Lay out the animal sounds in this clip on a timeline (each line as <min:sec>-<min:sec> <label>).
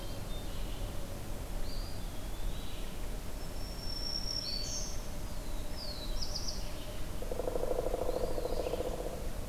0:00.0-0:00.7 Hermit Thrush (Catharus guttatus)
0:00.0-0:09.0 Red-eyed Vireo (Vireo olivaceus)
0:01.5-0:02.9 Eastern Wood-Pewee (Contopus virens)
0:03.4-0:04.9 Black-throated Green Warbler (Setophaga virens)
0:05.2-0:06.7 Black-throated Blue Warbler (Setophaga caerulescens)
0:07.1-0:09.5 Pileated Woodpecker (Dryocopus pileatus)
0:08.0-0:08.7 Eastern Wood-Pewee (Contopus virens)